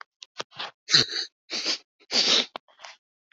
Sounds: Sniff